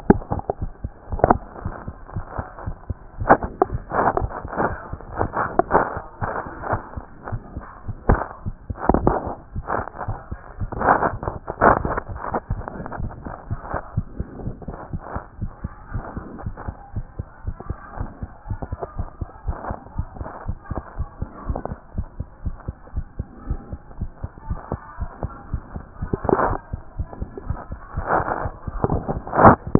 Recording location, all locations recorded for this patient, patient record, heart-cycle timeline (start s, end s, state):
tricuspid valve (TV)
aortic valve (AV)+pulmonary valve (PV)+tricuspid valve (TV)+mitral valve (MV)
#Age: Child
#Sex: Male
#Height: 111.0 cm
#Weight: 21.3 kg
#Pregnancy status: False
#Murmur: Absent
#Murmur locations: nan
#Most audible location: nan
#Systolic murmur timing: nan
#Systolic murmur shape: nan
#Systolic murmur grading: nan
#Systolic murmur pitch: nan
#Systolic murmur quality: nan
#Diastolic murmur timing: nan
#Diastolic murmur shape: nan
#Diastolic murmur grading: nan
#Diastolic murmur pitch: nan
#Diastolic murmur quality: nan
#Outcome: Normal
#Campaign: 2014 screening campaign
0.00	13.50	unannotated
13.50	13.60	S1
13.60	13.72	systole
13.72	13.80	S2
13.80	13.96	diastole
13.96	14.06	S1
14.06	14.18	systole
14.18	14.26	S2
14.26	14.44	diastole
14.44	14.54	S1
14.54	14.68	systole
14.68	14.76	S2
14.76	14.92	diastole
14.92	15.02	S1
15.02	15.14	systole
15.14	15.22	S2
15.22	15.40	diastole
15.40	15.52	S1
15.52	15.62	systole
15.62	15.72	S2
15.72	15.92	diastole
15.92	16.04	S1
16.04	16.16	systole
16.16	16.24	S2
16.24	16.44	diastole
16.44	16.56	S1
16.56	16.66	systole
16.66	16.76	S2
16.76	16.94	diastole
16.94	17.06	S1
17.06	17.18	systole
17.18	17.26	S2
17.26	17.46	diastole
17.46	17.56	S1
17.56	17.68	systole
17.68	17.78	S2
17.78	17.98	diastole
17.98	18.10	S1
18.10	18.22	systole
18.22	18.30	S2
18.30	18.48	diastole
18.48	18.60	S1
18.60	18.70	systole
18.70	18.78	S2
18.78	18.96	diastole
18.96	19.08	S1
19.08	19.20	systole
19.20	19.28	S2
19.28	19.46	diastole
19.46	19.58	S1
19.58	19.68	systole
19.68	19.78	S2
19.78	19.96	diastole
19.96	20.08	S1
20.08	20.18	systole
20.18	20.28	S2
20.28	20.46	diastole
20.46	20.58	S1
20.58	20.70	systole
20.70	20.82	S2
20.82	20.98	diastole
20.98	21.08	S1
21.08	21.20	systole
21.20	21.28	S2
21.28	21.48	diastole
21.48	21.60	S1
21.60	21.70	systole
21.70	21.78	S2
21.78	21.96	diastole
21.96	22.06	S1
22.06	22.18	systole
22.18	22.26	S2
22.26	22.44	diastole
22.44	22.56	S1
22.56	22.66	systole
22.66	22.76	S2
22.76	22.94	diastole
22.94	23.06	S1
23.06	23.18	systole
23.18	23.26	S2
23.26	23.48	diastole
23.48	23.60	S1
23.60	23.70	systole
23.70	23.80	S2
23.80	24.00	diastole
24.00	24.10	S1
24.10	24.22	systole
24.22	24.30	S2
24.30	24.48	diastole
24.48	24.60	S1
24.60	24.72	systole
24.72	24.80	S2
24.80	25.00	diastole
25.00	25.10	S1
25.10	25.22	systole
25.22	25.32	S2
25.32	25.52	diastole
25.52	25.62	S1
25.62	25.74	systole
25.74	25.84	S2
25.84	26.02	diastole
26.02	29.79	unannotated